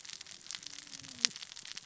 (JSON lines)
{"label": "biophony, cascading saw", "recorder": "SoundTrap 600 or HydroMoth"}